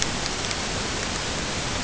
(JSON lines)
{"label": "ambient", "recorder": "HydroMoth"}